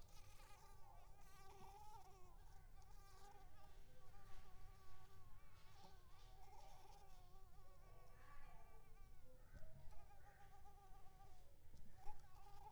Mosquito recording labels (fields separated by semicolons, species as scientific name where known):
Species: Anopheles coustani; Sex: female; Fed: unfed; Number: one; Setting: cup